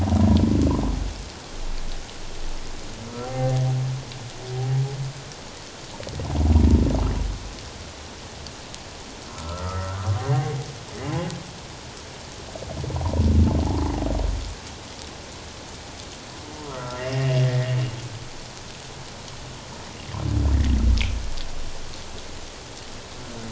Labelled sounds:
3.2	3.6	humpback whale, 0.78 to 1.8 kHz
9.3	10.6	humpback whale, 0.78 to 1.6 kHz
16.7	17.5	humpback whale, 1.0 to 2.9 kHz

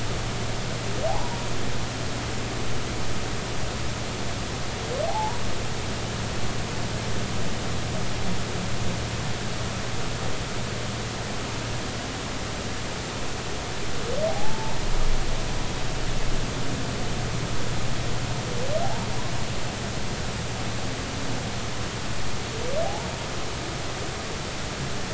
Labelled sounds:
5.1	5.4	humpback whale, 0.80 to 1.0 kHz
14.3	14.8	humpback whale, 0.80 to 1.0 kHz
22.8	23.1	humpback whale, 0.80 to 0.96 kHz

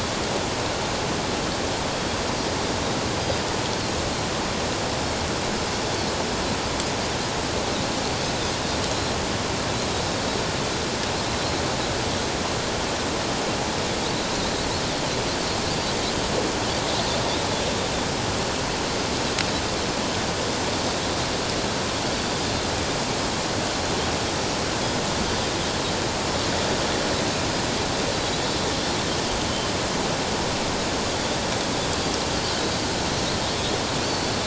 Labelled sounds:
8.9	9.2	Pacific white-sided dolphin, 4.0 to 4.2 kHz
14.3	14.6	Pacific white-sided dolphin, 3.8 to 4.2 kHz
34.0	34.3	Pacific white-sided dolphin, 4.3 to 4.6 kHz

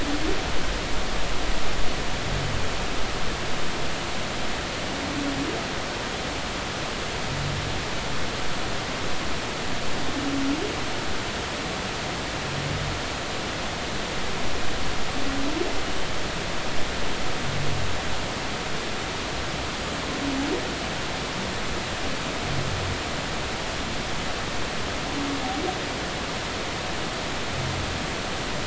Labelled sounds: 15.9	16.1	humpback whale, 2.8 to 3.1 kHz

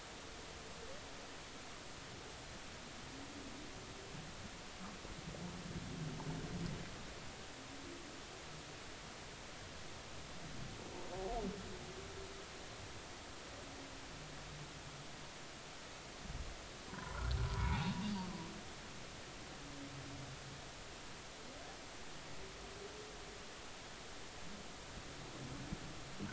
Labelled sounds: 16.9	17.9	humpback whale, 0.80 to 1.2 kHz

